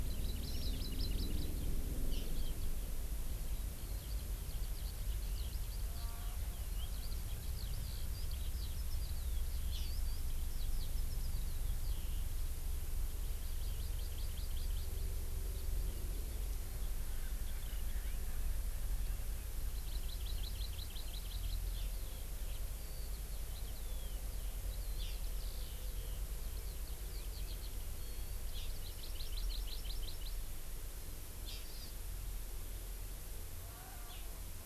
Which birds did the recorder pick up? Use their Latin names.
Chlorodrepanis virens, Alauda arvensis